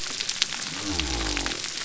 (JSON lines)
{"label": "biophony", "recorder": "SoundTrap 300"}